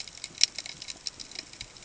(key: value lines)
label: ambient
recorder: HydroMoth